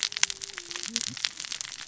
{"label": "biophony, cascading saw", "recorder": "SoundTrap 600 or HydroMoth"}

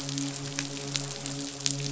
{"label": "biophony, midshipman", "recorder": "SoundTrap 500"}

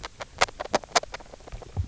{"label": "biophony, grazing", "recorder": "SoundTrap 300"}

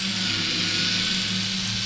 {"label": "anthrophony, boat engine", "recorder": "SoundTrap 500"}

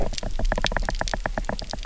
{"label": "biophony, knock", "recorder": "SoundTrap 300"}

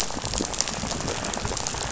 {"label": "biophony, rattle", "recorder": "SoundTrap 500"}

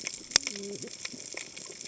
{"label": "biophony, cascading saw", "recorder": "HydroMoth"}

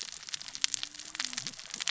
{"label": "biophony, cascading saw", "recorder": "SoundTrap 600 or HydroMoth"}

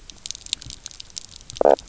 {"label": "biophony, knock croak", "recorder": "SoundTrap 300"}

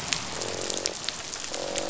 {"label": "biophony, croak", "recorder": "SoundTrap 500"}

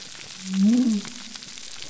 {"label": "biophony", "recorder": "SoundTrap 300"}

